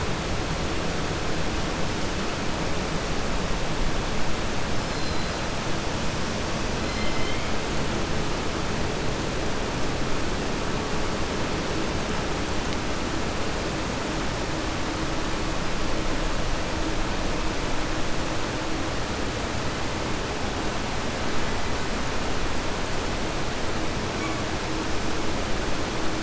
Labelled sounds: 6.8	7.5	killer whale, southern resident, 2.0 to 5.2 kHz

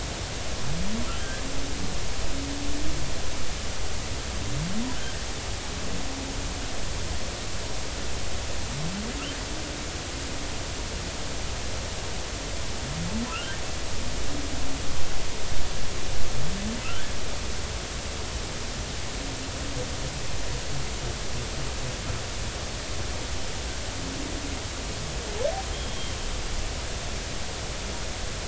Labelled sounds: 25.7	26.2	humpback whale, 3.1 to 3.3 kHz

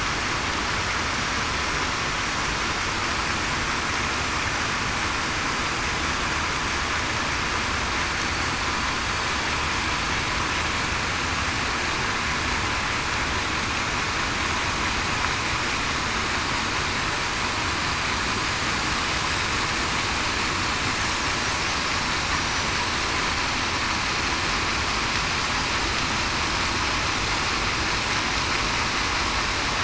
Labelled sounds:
22.3	22.8	killer whale, southern resident, 5.7 to 6.0 kHz

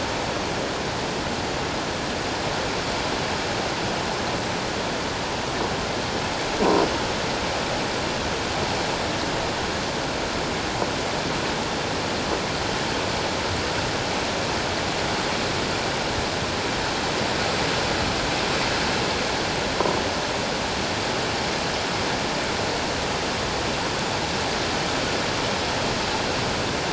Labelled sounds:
6.6	6.8	croaking sound likely from a nearby submerged object, 0.94 to 1.1 kHz

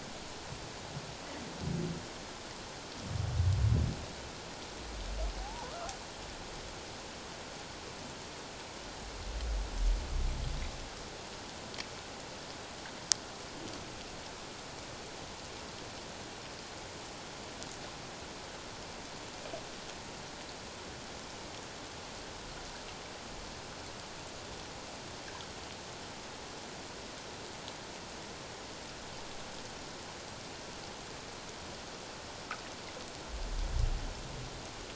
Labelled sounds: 5.4	5.9	humpback whale, 0.78 to 1.4 kHz

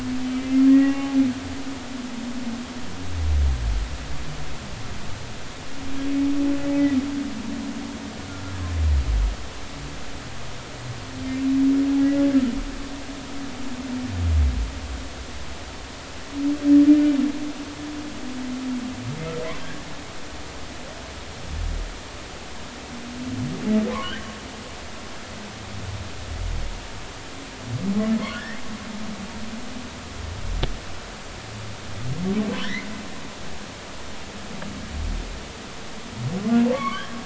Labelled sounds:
0.4	1.2	humpback whale, 0.80 to 2.8 kHz
12.0	12.2	humpback whale, 1.9 to 2.0 kHz
19.6	19.9	humpback whale, 1.6 to 1.8 kHz
25.0	25.3	humpback whale, 1.4 to 2.0 kHz
28.3	28.6	humpback whale, 1.6 to 2.2 kHz
32.6	32.9	humpback whale, 1.4 to 2.2 kHz
36.7	37.2	humpback whale, 0.99 to 2.3 kHz

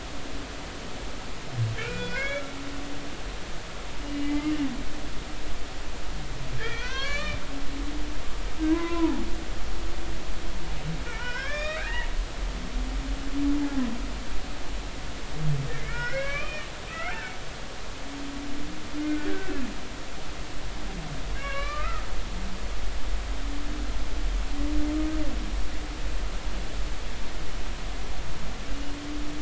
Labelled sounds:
1.8	2.4	humpback whale, 1.3 to 5.0 kHz
4.0	4.5	humpback whale, 2.0 to 2.9 kHz
6.6	7.4	humpback whale, 0.96 to 4.7 kHz
8.7	9.2	humpback whale, 0.83 to 2.1 kHz
11.1	12.1	humpback whale, 1.0 to 5.7 kHz
15.7	17.2	humpback whale, 1.0 to 5.5 kHz
19.0	19.7	humpback whale, 1.4 to 2.7 kHz
21.4	22.1	humpback whale, 1.1 to 4.2 kHz

